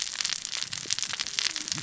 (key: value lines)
label: biophony, cascading saw
recorder: SoundTrap 600 or HydroMoth